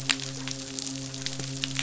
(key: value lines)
label: biophony, midshipman
recorder: SoundTrap 500